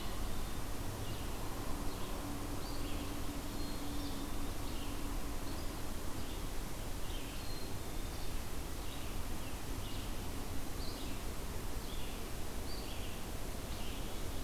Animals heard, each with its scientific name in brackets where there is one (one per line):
Red-eyed Vireo (Vireo olivaceus)
Black-capped Chickadee (Poecile atricapillus)